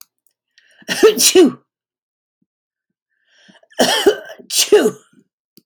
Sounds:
Sneeze